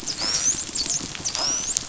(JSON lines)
{"label": "biophony, dolphin", "recorder": "SoundTrap 500"}